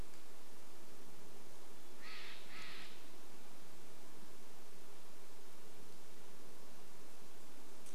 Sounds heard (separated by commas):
Steller's Jay call, Red-breasted Nuthatch song